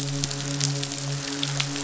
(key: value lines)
label: biophony, midshipman
recorder: SoundTrap 500